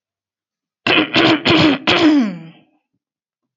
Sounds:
Throat clearing